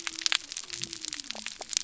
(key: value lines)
label: biophony
recorder: SoundTrap 300